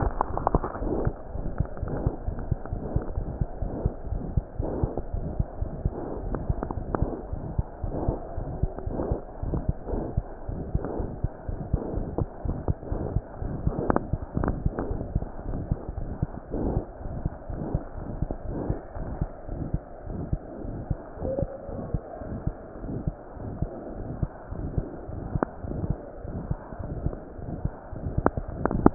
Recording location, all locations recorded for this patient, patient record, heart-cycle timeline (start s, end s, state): aortic valve (AV)
aortic valve (AV)+pulmonary valve (PV)+tricuspid valve (TV)+mitral valve (MV)
#Age: Infant
#Sex: Male
#Height: 72.0 cm
#Weight: 8.8 kg
#Pregnancy status: False
#Murmur: Present
#Murmur locations: aortic valve (AV)+mitral valve (MV)+pulmonary valve (PV)+tricuspid valve (TV)
#Most audible location: aortic valve (AV)
#Systolic murmur timing: Early-systolic
#Systolic murmur shape: Decrescendo
#Systolic murmur grading: II/VI
#Systolic murmur pitch: Low
#Systolic murmur quality: Blowing
#Diastolic murmur timing: nan
#Diastolic murmur shape: nan
#Diastolic murmur grading: nan
#Diastolic murmur pitch: nan
#Diastolic murmur quality: nan
#Outcome: Abnormal
#Campaign: 2015 screening campaign
0.00	3.94	unannotated
3.94	4.10	diastole
4.10	4.19	S1
4.19	4.34	systole
4.34	4.42	S2
4.42	4.57	diastole
4.57	4.64	S1
4.64	4.80	systole
4.80	4.88	S2
4.88	5.12	diastole
5.12	5.24	S1
5.24	5.36	systole
5.36	5.46	S2
5.46	5.60	diastole
5.60	5.74	S1
5.74	5.82	systole
5.82	5.94	S2
5.94	6.18	diastole
6.18	6.36	S1
6.36	6.48	systole
6.48	6.58	S2
6.58	6.74	diastole
6.74	6.88	S1
6.88	7.00	systole
7.00	7.12	S2
7.12	7.30	diastole
7.30	7.44	S1
7.44	7.56	systole
7.56	7.68	S2
7.68	7.83	diastole
7.83	7.93	S1
7.93	8.06	systole
8.06	8.20	S2
8.20	8.36	diastole
8.36	8.48	S1
8.48	8.58	systole
8.58	8.70	S2
8.70	8.85	diastole
8.85	9.01	S1
9.01	9.08	systole
9.08	9.20	S2
9.20	9.41	diastole
9.41	9.59	S1
9.59	9.66	systole
9.66	9.78	S2
9.78	9.92	diastole
9.92	10.08	S1
10.08	10.16	systole
10.16	10.26	S2
10.26	10.48	diastole
10.48	10.64	S1
10.64	10.72	systole
10.72	10.82	S2
10.82	10.98	diastole
10.98	11.08	S1
11.08	11.18	systole
11.18	11.30	S2
11.30	11.47	diastole
11.47	11.60	S1
11.60	11.68	systole
11.68	11.80	S2
11.80	11.94	diastole
11.94	12.08	S1
12.08	12.18	systole
12.18	12.28	S2
12.28	12.46	diastole
12.46	12.60	S1
12.60	12.66	systole
12.66	12.76	S2
12.76	12.90	diastole
12.90	13.06	S1
13.06	13.10	systole
13.10	13.22	S2
13.22	13.39	diastole
13.39	13.56	S1
13.56	13.64	systole
13.64	13.76	S2
13.76	13.90	diastole
13.90	14.04	S1
14.04	14.12	systole
14.12	14.22	S2
14.22	14.38	diastole
14.38	14.56	S1
14.56	14.60	systole
14.60	14.72	S2
14.72	14.88	diastole
14.88	15.04	S1
15.04	15.12	systole
15.12	15.28	S2
15.28	15.48	diastole
15.48	15.66	S1
15.66	15.70	systole
15.70	15.80	S2
15.80	15.96	diastole
15.96	16.10	S1
16.10	16.18	systole
16.18	16.32	S2
16.32	16.50	diastole
16.50	16.62	S1
16.62	16.74	systole
16.74	16.86	S2
16.86	17.04	diastole
17.04	17.14	S1
17.14	17.22	systole
17.22	17.34	S2
17.34	17.48	diastole
17.48	17.58	S1
17.58	17.70	systole
17.70	17.82	S2
17.82	17.98	diastole
17.98	18.06	S1
18.06	18.20	systole
18.20	18.30	S2
18.30	18.45	diastole
18.45	18.60	S1
18.60	18.68	systole
18.68	18.80	S2
18.80	18.96	diastole
18.96	19.10	S1
19.10	19.20	systole
19.20	19.28	S2
19.28	19.52	diastole
19.52	19.66	S1
19.66	19.72	systole
19.72	19.86	S2
19.86	20.10	diastole
20.10	20.24	S1
20.24	20.31	systole
20.31	20.40	S2
20.40	20.64	diastole
20.64	20.82	S1
20.82	20.88	systole
20.88	21.02	S2
21.02	21.21	diastole
21.21	21.30	S1
21.30	21.41	systole
21.41	21.49	S2
21.49	21.74	diastole
21.74	21.84	S1
21.84	21.90	systole
21.90	22.06	S2
22.06	22.26	diastole
22.26	22.38	S1
22.38	22.45	systole
22.45	22.53	S2
22.53	22.86	diastole
22.86	22.96	S1
22.96	23.05	systole
23.05	23.12	S2
23.12	23.42	diastole
23.42	23.55	S1
23.55	23.60	systole
23.60	23.72	S2
23.72	23.94	diastole
23.94	24.06	S1
24.06	24.18	systole
24.18	24.30	S2
24.30	24.52	diastole
24.52	24.70	S1
24.70	24.76	systole
24.76	24.88	S2
24.88	25.10	diastole
25.10	25.22	S1
25.22	25.32	systole
25.32	25.48	S2
25.48	25.66	diastole
25.66	25.78	S1
25.78	25.87	systole
25.87	25.98	S2
25.98	26.29	diastole
26.29	28.94	unannotated